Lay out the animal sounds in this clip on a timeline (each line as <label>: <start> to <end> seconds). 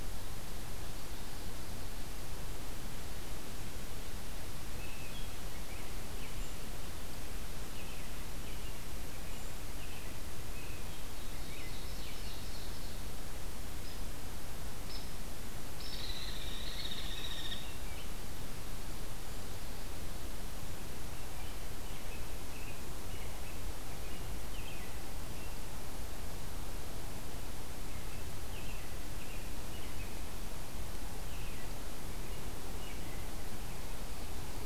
American Robin (Turdus migratorius): 4.7 to 6.7 seconds
American Robin (Turdus migratorius): 7.7 to 12.5 seconds
Ovenbird (Seiurus aurocapilla): 11.3 to 13.0 seconds
Hairy Woodpecker (Dryobates villosus): 13.8 to 14.1 seconds
Hairy Woodpecker (Dryobates villosus): 14.8 to 15.1 seconds
Hairy Woodpecker (Dryobates villosus): 15.7 to 17.8 seconds
American Robin (Turdus migratorius): 16.6 to 18.2 seconds
American Robin (Turdus migratorius): 21.1 to 25.6 seconds
American Robin (Turdus migratorius): 27.8 to 30.3 seconds
American Robin (Turdus migratorius): 31.2 to 33.7 seconds